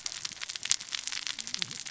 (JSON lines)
{"label": "biophony, cascading saw", "recorder": "SoundTrap 600 or HydroMoth"}